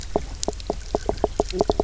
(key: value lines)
label: biophony, knock croak
recorder: SoundTrap 300